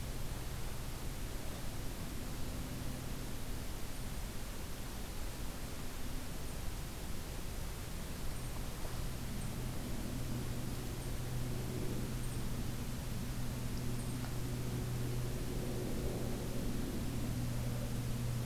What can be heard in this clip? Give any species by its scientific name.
Regulus satrapa